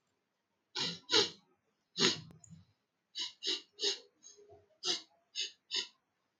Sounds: Sniff